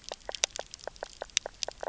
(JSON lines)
{"label": "biophony, knock croak", "recorder": "SoundTrap 300"}